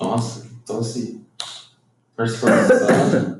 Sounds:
Cough